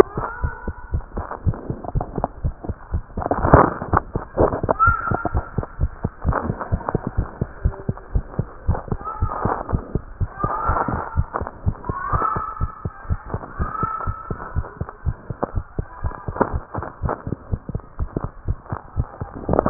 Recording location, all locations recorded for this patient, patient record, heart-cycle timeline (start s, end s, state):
tricuspid valve (TV)
aortic valve (AV)+pulmonary valve (PV)+tricuspid valve (TV)+mitral valve (MV)
#Age: Child
#Sex: Female
#Height: 106.0 cm
#Weight: 20.5 kg
#Pregnancy status: False
#Murmur: Absent
#Murmur locations: nan
#Most audible location: nan
#Systolic murmur timing: nan
#Systolic murmur shape: nan
#Systolic murmur grading: nan
#Systolic murmur pitch: nan
#Systolic murmur quality: nan
#Diastolic murmur timing: nan
#Diastolic murmur shape: nan
#Diastolic murmur grading: nan
#Diastolic murmur pitch: nan
#Diastolic murmur quality: nan
#Outcome: Normal
#Campaign: 2015 screening campaign
0.00	0.26	unannotated
0.26	0.38	diastole
0.38	0.52	S1
0.52	0.66	systole
0.66	0.76	S2
0.76	0.92	diastole
0.92	1.06	S1
1.06	1.14	systole
1.14	1.26	S2
1.26	1.44	diastole
1.44	1.58	S1
1.58	1.68	systole
1.68	1.78	S2
1.78	1.94	diastole
1.94	2.06	S1
2.06	2.16	systole
2.16	2.26	S2
2.26	2.42	diastole
2.42	2.54	S1
2.54	2.64	systole
2.64	2.76	S2
2.76	2.92	diastole
2.92	3.04	S1
3.04	3.16	systole
3.16	3.26	S2
3.26	3.42	diastole
3.42	5.31	unannotated
5.31	5.46	S1
5.46	5.56	systole
5.56	5.64	S2
5.64	5.78	diastole
5.78	5.92	S1
5.92	6.02	systole
6.02	6.12	S2
6.12	6.24	diastole
6.24	6.38	S1
6.38	6.44	systole
6.44	6.56	S2
6.56	6.70	diastole
6.70	6.82	S1
6.82	6.90	systole
6.90	7.02	S2
7.02	7.14	diastole
7.14	7.28	S1
7.28	7.40	systole
7.40	7.48	S2
7.48	7.60	diastole
7.60	7.74	S1
7.74	7.86	systole
7.86	7.96	S2
7.96	8.12	diastole
8.12	8.24	S1
8.24	8.36	systole
8.36	8.48	S2
8.48	8.64	diastole
8.64	8.80	S1
8.80	8.90	systole
8.90	9.00	S2
9.00	9.18	diastole
9.18	9.34	S1
9.34	9.44	systole
9.44	9.54	S2
9.54	9.70	diastole
9.70	9.84	S1
9.84	9.94	systole
9.94	10.06	S2
10.06	10.20	diastole
10.20	10.30	S1
10.30	10.42	systole
10.42	10.52	S2
10.52	10.66	diastole
10.66	10.80	S1
10.80	10.88	systole
10.88	11.02	S2
11.02	11.16	diastole
11.16	11.28	S1
11.28	11.40	systole
11.40	11.50	S2
11.50	11.64	diastole
11.64	11.78	S1
11.78	11.88	systole
11.88	11.96	S2
11.96	12.10	diastole
12.10	12.22	S1
12.22	12.34	systole
12.34	12.44	S2
12.44	12.60	diastole
12.60	12.70	S1
12.70	12.84	systole
12.84	12.92	S2
12.92	13.08	diastole
13.08	13.22	S1
13.22	13.32	systole
13.32	13.42	S2
13.42	13.58	diastole
13.58	13.70	S1
13.70	13.82	systole
13.82	13.90	S2
13.90	14.06	diastole
14.06	14.16	S1
14.16	14.30	systole
14.30	14.38	S2
14.38	14.54	diastole
14.54	14.66	S1
14.66	14.80	systole
14.80	14.88	S2
14.88	15.04	diastole
15.04	15.18	S1
15.18	15.28	systole
15.28	15.38	S2
15.38	15.54	diastole
15.54	15.64	S1
15.64	15.76	systole
15.76	15.86	S2
15.86	16.02	diastole
16.02	16.14	S1
16.14	16.28	systole
16.28	16.36	S2
16.36	16.50	diastole
16.50	16.62	S1
16.62	16.76	systole
16.76	16.86	S2
16.86	17.02	diastole
17.02	17.14	S1
17.14	17.26	systole
17.26	17.36	S2
17.36	17.50	diastole
17.50	17.60	S1
17.60	17.68	systole
17.68	17.82	S2
17.82	18.00	diastole
18.00	18.10	S1
18.10	18.24	systole
18.24	18.32	S2
18.32	18.46	diastole
18.46	18.58	S1
18.58	18.70	systole
18.70	18.80	S2
18.80	18.96	diastole
18.96	19.10	S1
19.10	19.22	systole
19.22	19.30	S2
19.30	19.48	diastole
19.48	19.70	unannotated